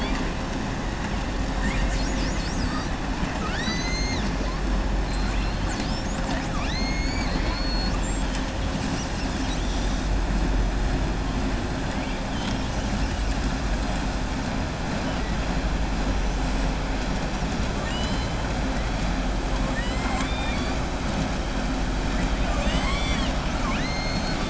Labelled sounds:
3.3	4.3	killer whale, southern resident, 0.86 to 7.9 kHz
17.7	18.3	killer whale, southern resident, 1.2 to 8.0 kHz
19.6	20.8	killer whale, southern resident, 0.80 to 5.0 kHz
22.4	23.4	killer whale, southern resident, 0.65 to 7.9 kHz

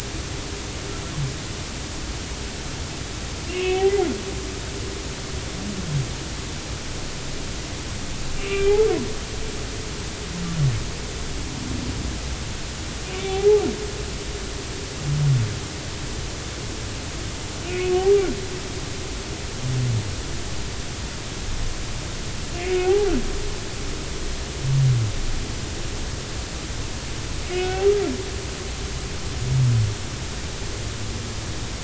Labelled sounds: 3.5	3.9	humpback whale, 2.1 to 2.8 kHz
8.4	8.8	humpback whale, 1.1 to 2.8 kHz
13.1	13.7	humpback whale, 0.80 to 2.4 kHz
17.7	17.9	humpback whale, 2.3 to 2.6 kHz
22.6	23.1	humpback whale, 0.80 to 2.6 kHz
27.5	27.8	humpback whale, 1.4 to 1.6 kHz

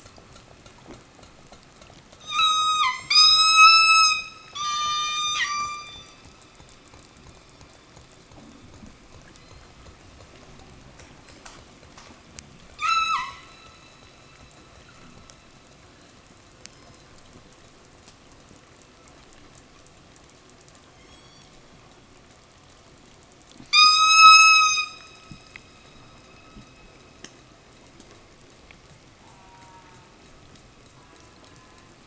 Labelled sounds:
2.1	6.3	killer whale, southern resident, 0.29 to 8.0 kHz
12.7	13.6	killer whale, southern resident, 0.80 to 8.0 kHz
20.8	21.6	killer whale, southern resident, 1.3 to 8.0 kHz
23.5	25.1	killer whale, southern resident, 0.72 to 8.0 kHz
29.1	30.2	killer whale, southern resident, call S04, 0.08 to 2.4 kHz
30.8	32.0	killer whale, southern resident, call S04, 0 to 2.6 kHz

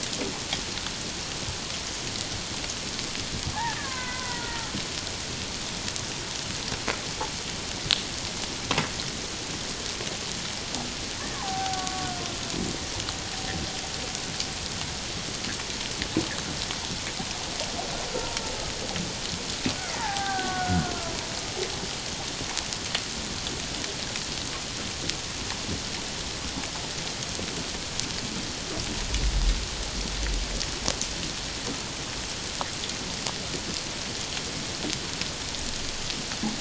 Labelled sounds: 3.8	4.7	killer whale, Bigg's (transient), 0.91 to 2.2 kHz
11.3	12.1	killer whale, Bigg's (transient), 0.78 to 1.6 kHz
18.1	18.4	killer whale, Bigg's (transient), 0.91 to 1.0 kHz
20.0	20.9	killer whale, Bigg's (transient), 0.78 to 1.7 kHz

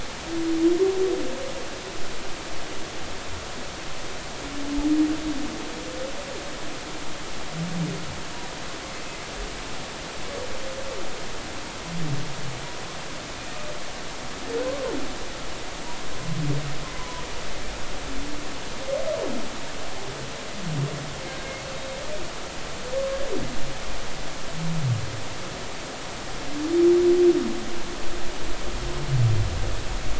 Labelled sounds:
17.0	17.2	humpback whale, 0.93 to 1.1 kHz

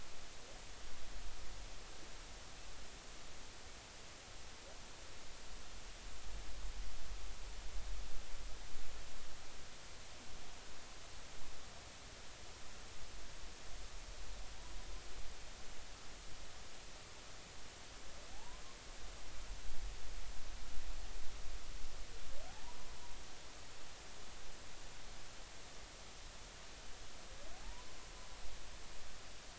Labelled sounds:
18.3	18.6	humpback whale, 0.80 to 1.1 kHz
27.6	27.9	humpback whale, 0.83 to 1.1 kHz

